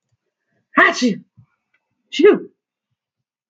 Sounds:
Sneeze